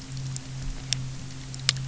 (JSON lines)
{"label": "anthrophony, boat engine", "recorder": "SoundTrap 300"}